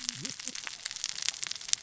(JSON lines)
{"label": "biophony, cascading saw", "recorder": "SoundTrap 600 or HydroMoth"}